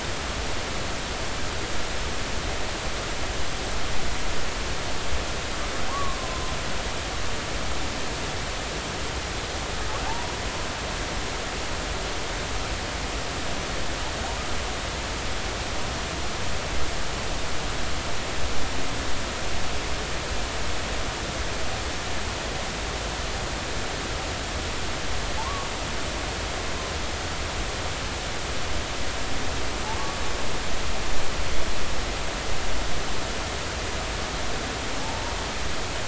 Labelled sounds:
5.9	6.2	humpback whale, 0.86 to 1.2 kHz
10.1	10.3	humpback whale, 0.80 to 0.99 kHz
25.4	25.7	humpback whale, 0.80 to 1.2 kHz
35.0	35.3	humpback whale, 0.80 to 0.99 kHz

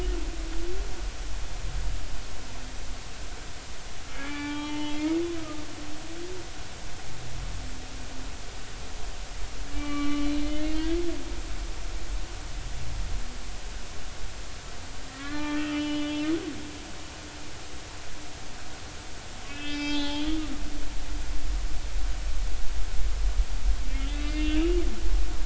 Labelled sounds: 4.1	5.2	humpback whale, 0.83 to 3.5 kHz
9.7	11.0	humpback whale, 1.1 to 3.4 kHz
15.1	16.3	humpback whale, 1.1 to 3.3 kHz
19.5	20.3	humpback whale, 0.80 to 5.3 kHz
20.6	21.0	humpback whale, 2.3 to 2.4 kHz
24.2	24.8	humpback whale, 2.3 to 2.9 kHz

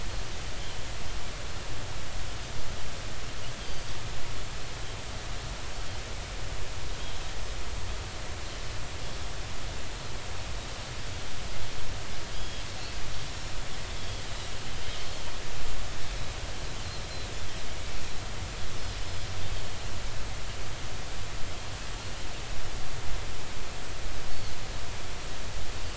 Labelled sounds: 3.6	3.9	Pacific white-sided dolphin, 4.6 to 4.8 kHz
12.3	12.6	Pacific white-sided dolphin, 3.2 to 3.4 kHz
14.0	14.2	Pacific white-sided dolphin, 3.2 to 3.4 kHz
17.1	17.3	Pacific white-sided dolphin, 3.8 to 4.3 kHz
19.0	19.3	Pacific white-sided dolphin, 4.9 to 5.3 kHz

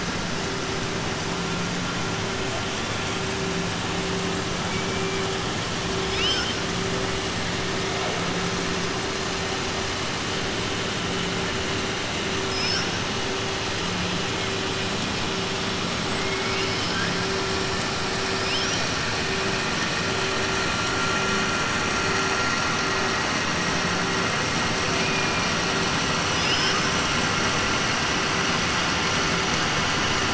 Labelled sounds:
6.0	6.6	killer whale, 1.4 to 7.8 kHz
16.2	17.1	killer whale, 1.3 to 3.1 kHz
26.2	26.9	killer whale, 1.2 to 6.2 kHz

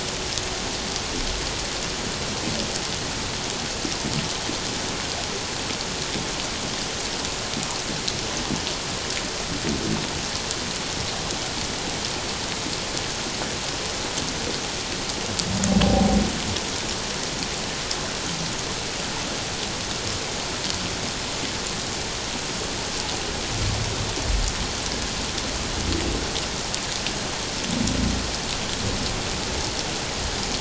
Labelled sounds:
15.8	16.2	humpback whale, 0.78 to 0.88 kHz

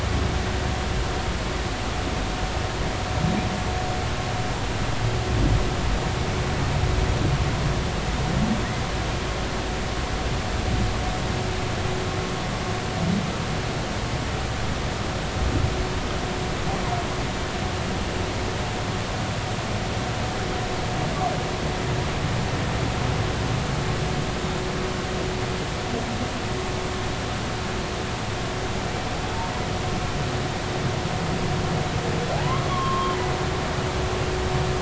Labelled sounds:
32.3	33.2	humpback whale, 0.80 to 1.2 kHz

